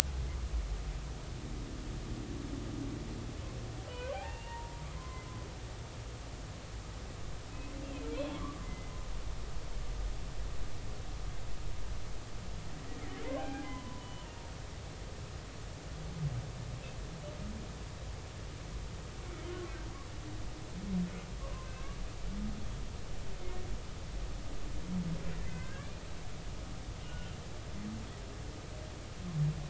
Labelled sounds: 3.9	5.2	humpback whale, 0.80 to 2.8 kHz
8.3	8.9	humpback whale, 0.99 to 2.1 kHz
13.3	14.0	humpback whale, 0.80 to 2.5 kHz
15.0	15.3	humpback whale, 2.9 to 3.0 kHz
21.4	22.0	humpback whale, 0.99 to 1.7 kHz
25.4	25.9	humpback whale, 1.5 to 2.1 kHz
27.0	27.3	humpback whale, 1.4 to 3.0 kHz

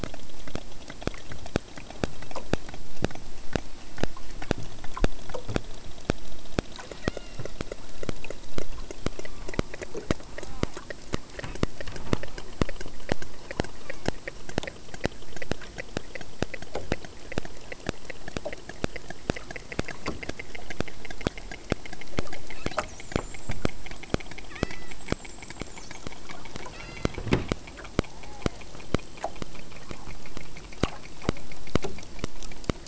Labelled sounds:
7.0	7.5	killer whale, southern Alaska resident, 0.57 to 6.0 kHz
8.9	9.6	killer whale, southern Alaska resident, 0.75 to 2.6 kHz
10.3	10.8	killer whale, southern Alaska resident, 0.41 to 1.6 kHz
24.5	25.1	killer whale, southern Alaska resident, 0.93 to 6.0 kHz
26.8	27.2	killer whale, southern Alaska resident, 0.98 to 8.0 kHz
27.8	28.7	killer whale, southern Alaska resident, 0.49 to 1.2 kHz

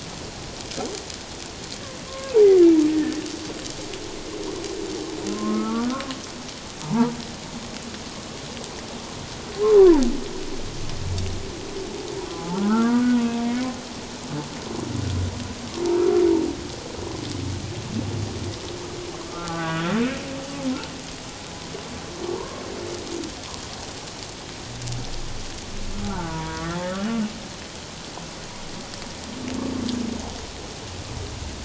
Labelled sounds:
2.1	3.2	humpback whale, 0.78 to 1.9 kHz
5.3	7.2	humpback whale, 0.84 to 1.5 kHz
12.5	13.2	humpback whale, 0.97 to 1.6 kHz
19.2	19.9	humpback whale, 0.94 to 1.7 kHz
22.4	22.6	humpback whale, 0.91 to 1.1 kHz
25.9	26.8	humpback whale, 0.91 to 1.6 kHz

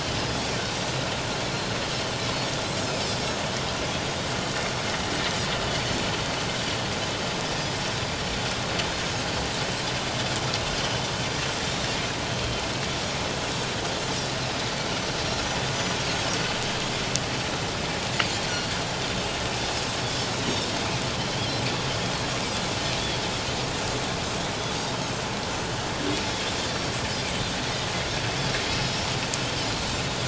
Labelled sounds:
2.8	3.1	Pacific white-sided dolphin, 5.1 to 5.4 kHz
27.6	29.0	Pacific white-sided dolphin, 1.9 to 5.2 kHz

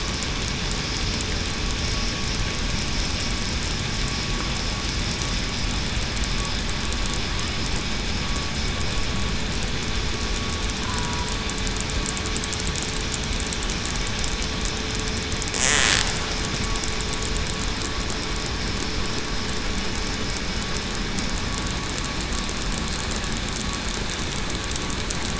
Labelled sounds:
10.8	11.3	killer whale, southern resident, 0.94 to 1.1 kHz

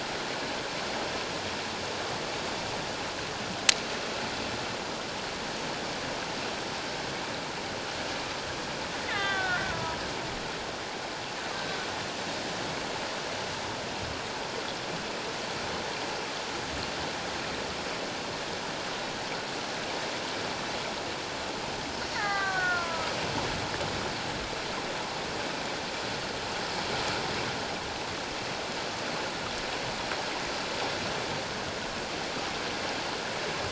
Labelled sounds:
9.1	10.0	killer whale, Bigg's (transient), 0.91 to 3.8 kHz
22.1	23.1	killer whale, Bigg's (transient), 0.78 to 2.2 kHz

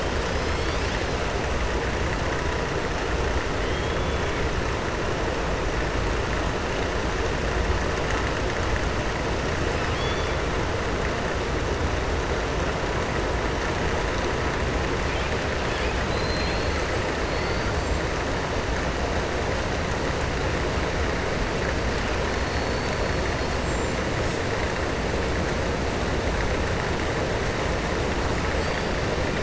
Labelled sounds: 3.6	4.3	killer whale, southern resident, 3.0 to 3.5 kHz
9.7	10.4	killer whale, southern resident, 2.6 to 5.3 kHz
16.0	16.8	killer whale, southern resident, 2.4 to 5.1 kHz
17.2	17.7	killer whale, southern resident, 3.5 to 4.7 kHz
23.5	24.0	killer whale, southern resident, 7.2 to 8.0 kHz

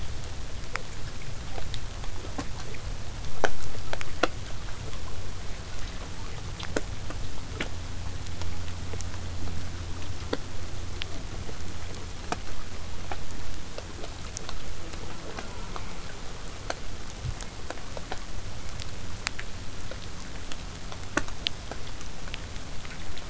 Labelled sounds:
14.7	16.1	killer whale, southern resident, J pod, call S04, 0.15 to 1.6 kHz

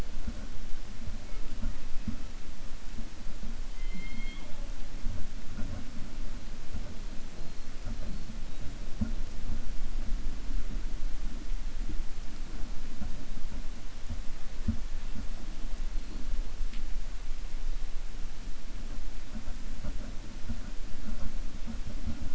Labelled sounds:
3.7	4.6	killer whale, 0.60 to 4.3 kHz

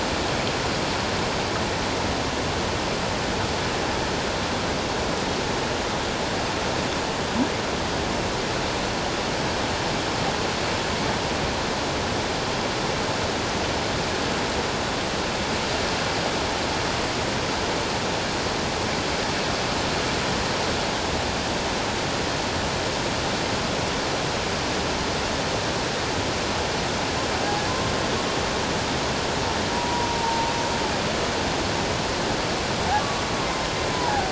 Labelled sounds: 29.7	30.5	humpback whale, 0.84 to 1.0 kHz
33.9	34.3	humpback whale, 0.78 to 1.0 kHz

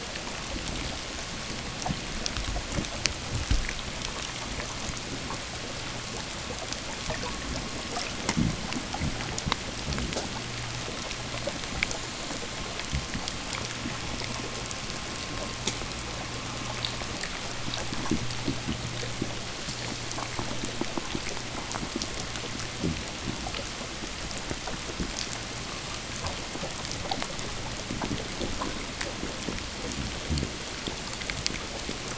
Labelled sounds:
8.2	10.2	fish, 0 to 0.64 kHz

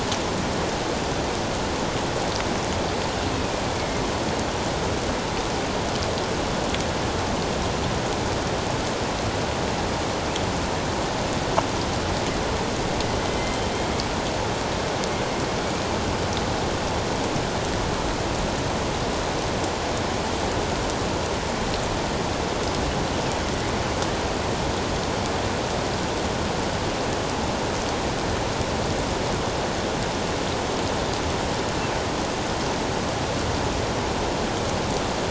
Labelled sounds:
3.8	4.0	killer whale, northern resident, A clan, AA subclan, 2.1 to 2.2 kHz
13.3	13.6	killer whale, northern resident, A clan, AA subclan, 2.0 to 2.1 kHz

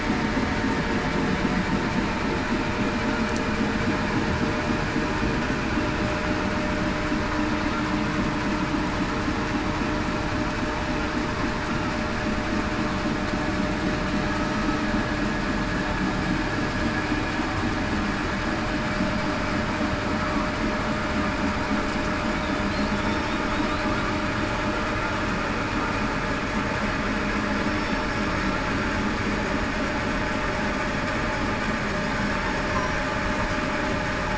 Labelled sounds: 23.0	23.3	killer whale, southern resident, 5.4 to 5.5 kHz
27.6	28.1	killer whale, southern resident, 5.2 to 5.4 kHz

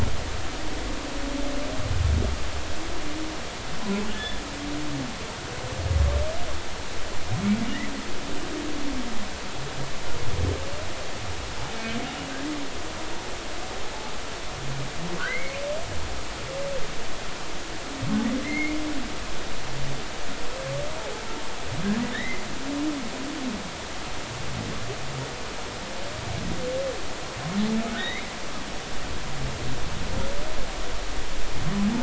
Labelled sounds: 4.1	4.4	humpback whale, 1.7 to 3.6 kHz
12.3	12.6	humpback whale, 1.5 to 2.0 kHz
15.3	15.6	humpback whale, 1.9 to 2.3 kHz
18.4	18.8	humpback whale, 2.0 to 2.5 kHz
22.1	22.4	humpback whale, 1.7 to 2.2 kHz
28.0	28.3	humpback whale, 1.8 to 3.8 kHz

